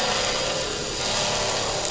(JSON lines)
{"label": "anthrophony, boat engine", "recorder": "SoundTrap 500"}